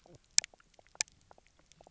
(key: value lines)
label: biophony, knock croak
recorder: SoundTrap 300